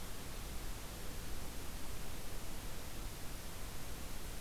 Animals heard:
forest ambience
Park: Acadia National Park